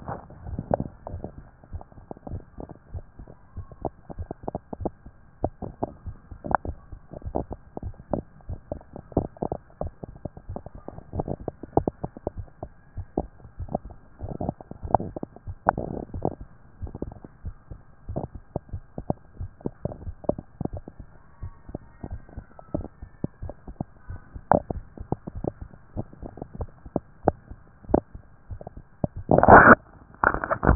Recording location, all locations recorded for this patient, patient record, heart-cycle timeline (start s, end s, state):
tricuspid valve (TV)
aortic valve (AV)+pulmonary valve (PV)+tricuspid valve (TV)+mitral valve (MV)
#Age: Child
#Sex: Male
#Height: 124.0 cm
#Weight: 35.8 kg
#Pregnancy status: False
#Murmur: Absent
#Murmur locations: nan
#Most audible location: nan
#Systolic murmur timing: nan
#Systolic murmur shape: nan
#Systolic murmur grading: nan
#Systolic murmur pitch: nan
#Systolic murmur quality: nan
#Diastolic murmur timing: nan
#Diastolic murmur shape: nan
#Diastolic murmur grading: nan
#Diastolic murmur pitch: nan
#Diastolic murmur quality: nan
#Outcome: Abnormal
#Campaign: 2014 screening campaign
0.00	2.18	unannotated
2.18	2.30	diastole
2.30	2.42	S1
2.42	2.58	systole
2.58	2.68	S2
2.68	2.92	diastole
2.92	3.04	S1
3.04	3.18	systole
3.18	3.28	S2
3.28	3.56	diastole
3.56	3.66	S1
3.66	3.82	systole
3.82	3.94	S2
3.94	4.18	diastole
4.18	4.28	S1
4.28	4.46	systole
4.46	4.58	S2
4.58	4.80	diastole
4.80	4.92	S1
4.92	5.06	systole
5.06	5.18	S2
5.18	5.42	diastole
5.42	30.75	unannotated